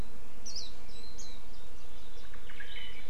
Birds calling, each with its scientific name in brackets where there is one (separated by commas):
Warbling White-eye (Zosterops japonicus), Omao (Myadestes obscurus)